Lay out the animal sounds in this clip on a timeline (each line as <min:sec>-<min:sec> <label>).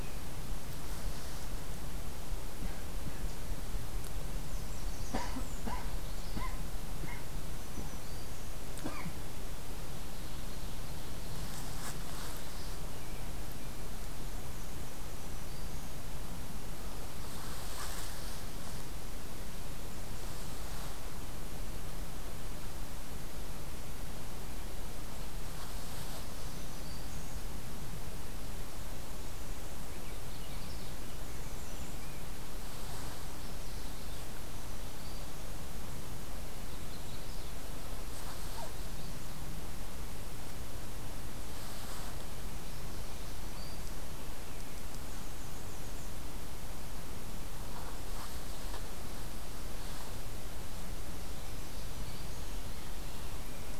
0:04.2-0:05.7 American Redstart (Setophaga ruticilla)
0:07.3-0:08.7 Black-throated Green Warbler (Setophaga virens)
0:10.0-0:11.7 Ovenbird (Seiurus aurocapilla)
0:14.8-0:16.0 Black-throated Green Warbler (Setophaga virens)
0:26.0-0:27.5 Black-throated Green Warbler (Setophaga virens)
0:29.7-0:31.0 American Redstart (Setophaga ruticilla)
0:31.3-0:32.1 American Redstart (Setophaga ruticilla)
0:34.3-0:35.5 Black-throated Green Warbler (Setophaga virens)
0:36.5-0:37.6 Magnolia Warbler (Setophaga magnolia)
0:42.9-0:44.1 Black-throated Green Warbler (Setophaga virens)
0:44.9-0:46.2 American Redstart (Setophaga ruticilla)
0:51.4-0:52.5 Black-throated Green Warbler (Setophaga virens)